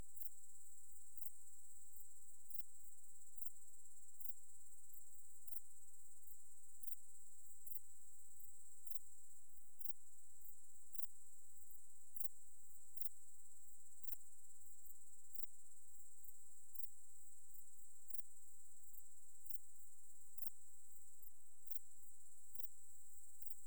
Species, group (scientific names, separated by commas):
Pholidoptera griseoaptera, Orthoptera